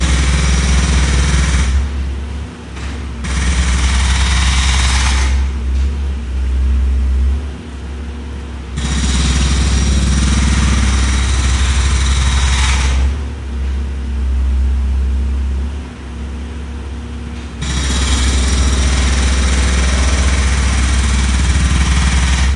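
0.1s A jackhammer is loudly and metallically drilling into material outdoors. 22.6s

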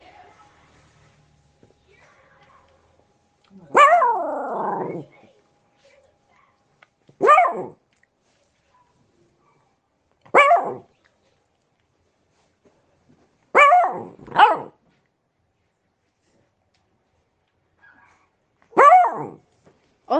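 0.0s People are talking quietly in the background indoors. 9.2s
3.7s A dog barks loudly and then gradually becomes quieter. 5.1s
7.1s A dog barks loudly. 7.9s
10.2s A dog barks loudly. 10.9s
13.4s A dog barks loudly. 14.7s
17.7s A dog barks quietly in the distance. 18.5s
18.6s A dog barks loudly. 19.3s
20.0s Someone is speaking indoors at a normal tone. 20.2s

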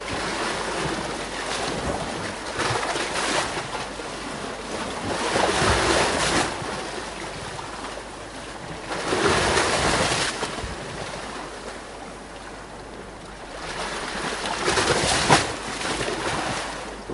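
0.2s Water waves splashing onto stones. 17.1s

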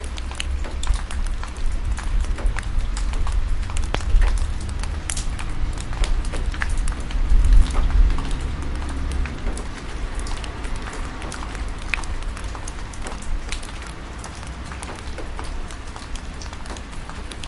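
0.0s Heavy, loud hum with rain and water droplets falling on leaves and the ground outdoors. 17.5s

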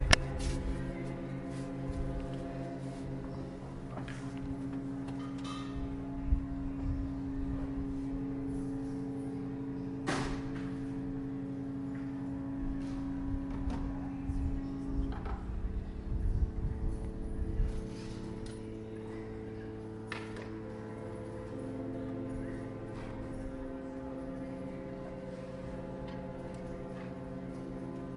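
0.0s Several ship horns are sounding. 28.2s
0.0s A female voice is speaking in the distance. 28.2s
5.1s Metallic banging. 5.7s
9.9s Heavy banging. 10.4s

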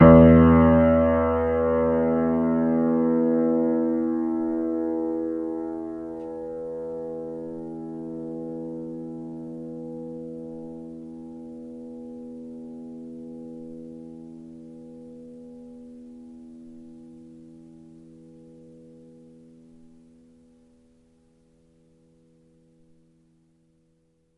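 0.0s A single piano note is struck loudly and then allowed to fade out completely. 24.4s

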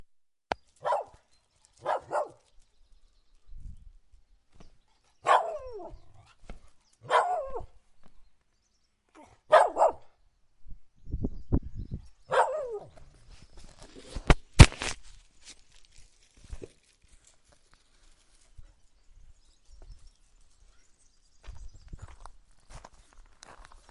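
0.4s Small, fast clapping sounds. 0.7s
0.5s Birds singing quietly and repeatedly in the distance. 14.1s
0.8s A dog barks quickly and lively once. 1.3s
1.7s Someone moves slightly on gravel. 4.8s
1.7s A dog barks twice quickly and lively. 2.4s
3.3s Wind blows rapidly. 4.4s
5.2s A dog barks once loudly and lively. 7.9s
6.3s A person moves slightly on the ground. 8.4s
9.1s A dog barks twice quickly and lively. 10.1s
10.5s Wind blows rapidly. 12.2s
12.2s A dog barks once with a long bark. 13.2s
13.3s A person unintentionally kicks the microphone. 15.5s
15.5s A person opens a package. 18.4s
18.5s A bird sings repeatedly and quietly in the distant background. 23.9s
21.4s Footsteps slowly walking on gravel. 23.9s

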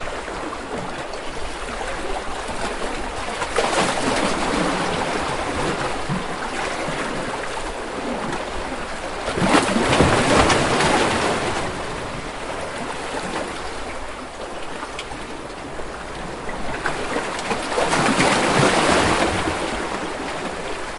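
0.0s A river flows. 21.0s
3.5s Water splashes. 6.2s
9.3s Water splashes. 11.9s
16.8s Water splashes. 19.7s

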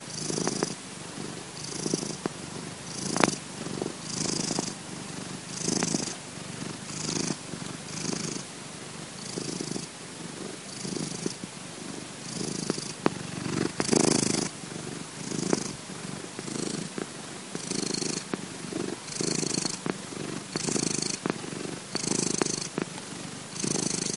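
0.0s A cat is purring continuously with a soft, rhythmic vibration that varies in intensity. 24.2s

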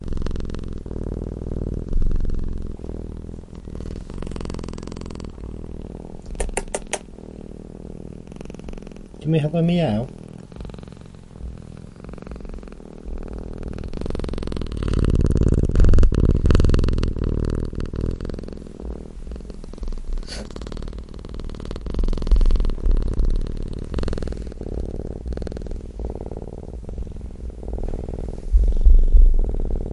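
0.4s A cat is purring softly and rhythmically. 29.9s
6.6s A man makes sharp, repetitive "tsk tsk tsk" sounds to get a cat's attention. 7.6s
9.1s A man speaks gently to a cat. 10.6s
14.7s A cat's purring intensifies, becoming louder and more pronounced. 18.2s
20.2s A man smirks softly and chuckles quietly in response to a cat's loud purring. 20.9s

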